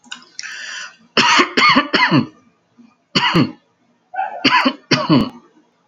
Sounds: Cough